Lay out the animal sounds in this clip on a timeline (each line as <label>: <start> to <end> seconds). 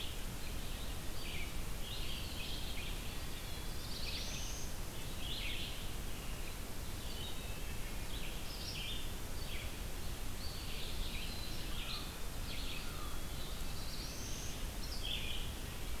Red-eyed Vireo (Vireo olivaceus): 0.0 to 15.5 seconds
Eastern Wood-Pewee (Contopus virens): 1.9 to 4.2 seconds
Black-throated Blue Warbler (Setophaga caerulescens): 3.1 to 4.8 seconds
Wood Thrush (Hylocichla mustelina): 7.1 to 7.8 seconds
Eastern Wood-Pewee (Contopus virens): 10.2 to 11.7 seconds
American Crow (Corvus brachyrhynchos): 11.6 to 13.2 seconds
Eastern Wood-Pewee (Contopus virens): 12.5 to 14.0 seconds
Black-throated Blue Warbler (Setophaga caerulescens): 12.8 to 14.6 seconds